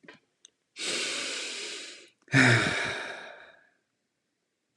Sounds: Sigh